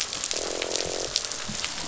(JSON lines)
{"label": "biophony, croak", "recorder": "SoundTrap 500"}